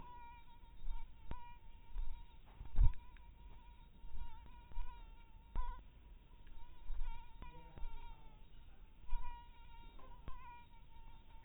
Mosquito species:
mosquito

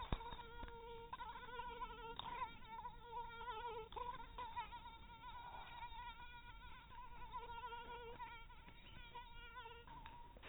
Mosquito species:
mosquito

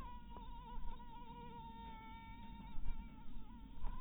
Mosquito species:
mosquito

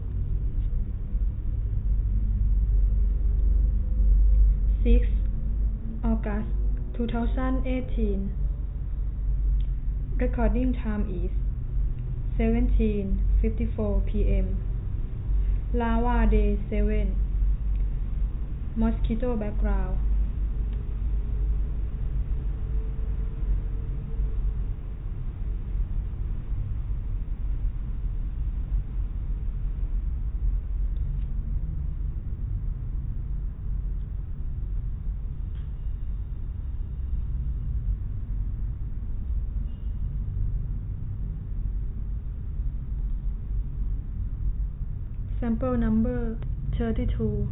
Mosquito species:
no mosquito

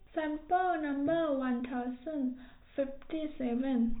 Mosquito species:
no mosquito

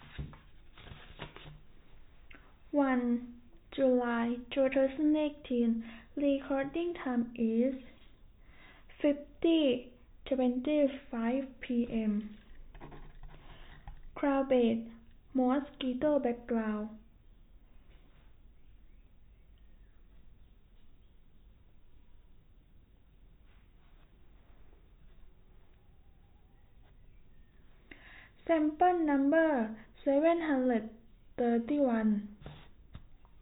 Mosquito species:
no mosquito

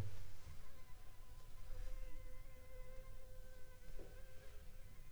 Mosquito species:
Anopheles funestus s.s.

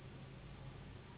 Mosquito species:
Anopheles gambiae s.s.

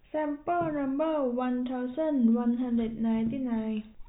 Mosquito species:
no mosquito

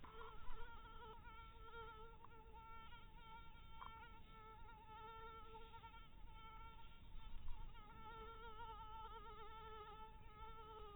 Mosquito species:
mosquito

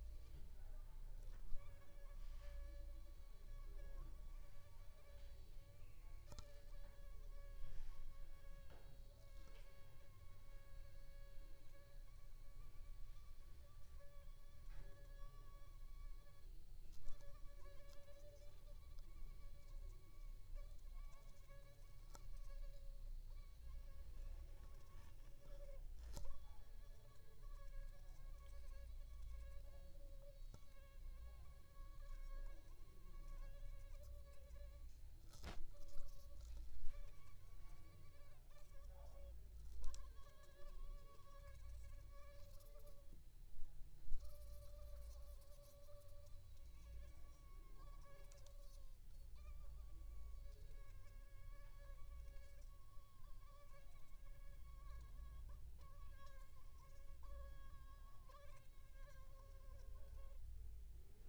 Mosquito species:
Aedes aegypti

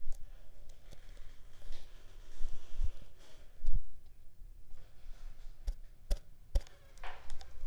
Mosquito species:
Culex pipiens complex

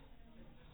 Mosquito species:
no mosquito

